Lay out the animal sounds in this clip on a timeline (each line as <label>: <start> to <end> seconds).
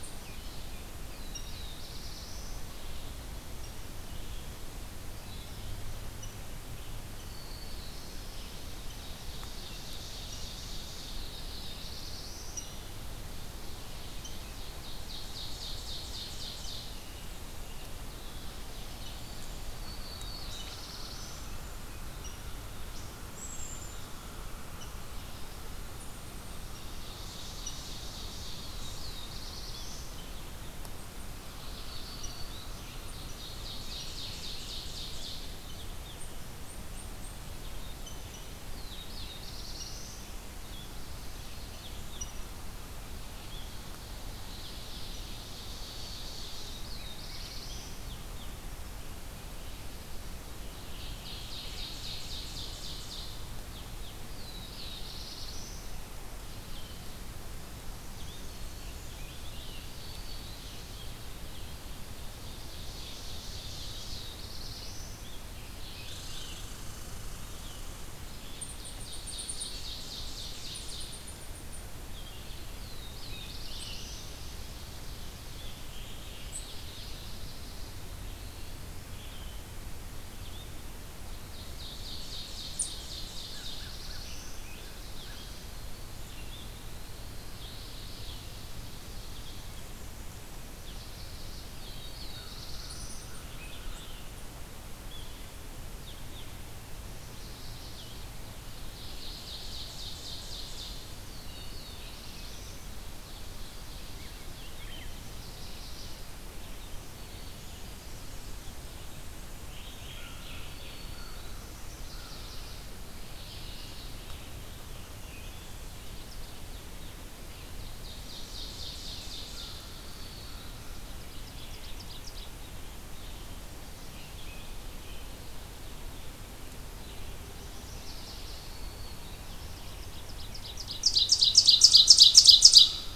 Red-eyed Vireo (Vireo olivaceus): 0.0 to 14.2 seconds
Black-throated Blue Warbler (Setophaga caerulescens): 0.8 to 3.0 seconds
Black-throated Green Warbler (Setophaga virens): 7.0 to 8.6 seconds
Ovenbird (Seiurus aurocapilla): 8.8 to 11.3 seconds
Black-throated Blue Warbler (Setophaga caerulescens): 10.8 to 12.9 seconds
Ovenbird (Seiurus aurocapilla): 14.4 to 17.1 seconds
Red-eyed Vireo (Vireo olivaceus): 16.8 to 72.5 seconds
Mourning Warbler (Geothlypis philadelphia): 18.3 to 19.4 seconds
Black-throated Blue Warbler (Setophaga caerulescens): 19.6 to 21.7 seconds
unidentified call: 23.3 to 24.2 seconds
Ovenbird (Seiurus aurocapilla): 26.6 to 29.3 seconds
Black-throated Blue Warbler (Setophaga caerulescens): 28.1 to 30.5 seconds
Black-throated Green Warbler (Setophaga virens): 31.7 to 33.0 seconds
Ovenbird (Seiurus aurocapilla): 33.1 to 35.6 seconds
Eastern Chipmunk (Tamias striatus): 36.0 to 37.5 seconds
Black-throated Blue Warbler (Setophaga caerulescens): 38.4 to 40.4 seconds
Ovenbird (Seiurus aurocapilla): 44.3 to 46.8 seconds
Black-throated Blue Warbler (Setophaga caerulescens): 46.1 to 48.2 seconds
Ovenbird (Seiurus aurocapilla): 50.6 to 53.6 seconds
Black-throated Blue Warbler (Setophaga caerulescens): 54.0 to 56.0 seconds
Scarlet Tanager (Piranga olivacea): 58.4 to 61.9 seconds
Black-throated Green Warbler (Setophaga virens): 59.8 to 61.0 seconds
Ovenbird (Seiurus aurocapilla): 62.0 to 64.5 seconds
Black-throated Blue Warbler (Setophaga caerulescens): 63.4 to 65.5 seconds
Mourning Warbler (Geothlypis philadelphia): 65.6 to 66.9 seconds
Red Squirrel (Tamiasciurus hudsonicus): 66.0 to 68.5 seconds
Eastern Chipmunk (Tamias striatus): 68.4 to 71.8 seconds
Ovenbird (Seiurus aurocapilla): 68.4 to 71.4 seconds
Black-throated Blue Warbler (Setophaga caerulescens): 72.3 to 74.7 seconds
Red-eyed Vireo (Vireo olivaceus): 73.3 to 130.1 seconds
Ovenbird (Seiurus aurocapilla): 73.7 to 75.9 seconds
Mourning Warbler (Geothlypis philadelphia): 75.3 to 77.4 seconds
Ovenbird (Seiurus aurocapilla): 81.2 to 83.9 seconds
Black-throated Blue Warbler (Setophaga caerulescens): 82.6 to 84.9 seconds
American Crow (Corvus brachyrhynchos): 82.8 to 85.6 seconds
Mourning Warbler (Geothlypis philadelphia): 87.2 to 88.8 seconds
Black-throated Blue Warbler (Setophaga caerulescens): 91.4 to 93.6 seconds
Eastern Chipmunk (Tamias striatus): 92.8 to 94.1 seconds
Mourning Warbler (Geothlypis philadelphia): 96.9 to 98.3 seconds
Ovenbird (Seiurus aurocapilla): 98.7 to 101.1 seconds
Black-throated Blue Warbler (Setophaga caerulescens): 101.2 to 103.1 seconds
Black-throated Green Warbler (Setophaga virens): 101.2 to 102.5 seconds
Mourning Warbler (Geothlypis philadelphia): 103.2 to 104.3 seconds
Chestnut-sided Warbler (Setophaga pensylvanica): 105.0 to 106.6 seconds
Scarlet Tanager (Piranga olivacea): 109.6 to 110.9 seconds
Black-throated Green Warbler (Setophaga virens): 110.5 to 111.8 seconds
Chestnut-sided Warbler (Setophaga pensylvanica): 111.8 to 113.0 seconds
Mourning Warbler (Geothlypis philadelphia): 113.3 to 114.4 seconds
Ovenbird (Seiurus aurocapilla): 117.6 to 122.6 seconds
Black-throated Green Warbler (Setophaga virens): 119.7 to 121.2 seconds
Chestnut-sided Warbler (Setophaga pensylvanica): 127.2 to 128.9 seconds
Black-throated Green Warbler (Setophaga virens): 128.4 to 129.6 seconds
Ovenbird (Seiurus aurocapilla): 129.8 to 133.2 seconds